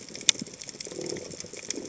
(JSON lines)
{"label": "biophony", "recorder": "HydroMoth"}